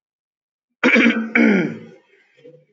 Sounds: Throat clearing